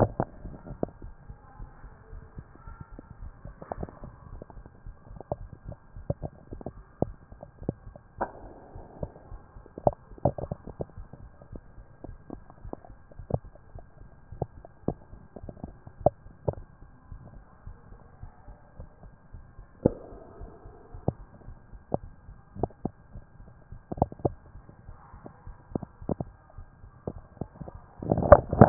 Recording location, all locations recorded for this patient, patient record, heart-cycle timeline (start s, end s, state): mitral valve (MV)
aortic valve (AV)+pulmonary valve (PV)+tricuspid valve (TV)+mitral valve (MV)
#Age: Adolescent
#Sex: Male
#Height: nan
#Weight: nan
#Pregnancy status: False
#Murmur: Absent
#Murmur locations: nan
#Most audible location: nan
#Systolic murmur timing: nan
#Systolic murmur shape: nan
#Systolic murmur grading: nan
#Systolic murmur pitch: nan
#Systolic murmur quality: nan
#Diastolic murmur timing: nan
#Diastolic murmur shape: nan
#Diastolic murmur grading: nan
#Diastolic murmur pitch: nan
#Diastolic murmur quality: nan
#Outcome: Abnormal
#Campaign: 2014 screening campaign
0.00	1.02	unannotated
1.02	1.13	S1
1.13	1.28	systole
1.28	1.38	S2
1.38	1.60	diastole
1.60	1.70	S1
1.70	1.82	systole
1.82	1.92	S2
1.92	2.12	diastole
2.12	2.24	S1
2.24	2.36	systole
2.36	2.46	S2
2.46	2.66	diastole
2.66	2.76	S1
2.76	2.92	systole
2.92	3.01	S2
3.01	3.20	diastole
3.20	3.32	S1
3.32	3.46	systole
3.46	3.54	S2
3.54	3.77	diastole
3.77	3.87	S1
3.87	4.02	systole
4.02	4.10	S2
4.10	4.30	diastole
4.30	4.42	S1
4.42	4.56	systole
4.56	4.64	S2
4.64	4.86	diastole
4.86	4.96	S1
4.96	5.10	systole
5.10	5.20	S2
5.20	5.38	diastole
5.38	5.50	S1
5.50	5.66	systole
5.66	5.76	S2
5.76	5.96	diastole
5.96	28.69	unannotated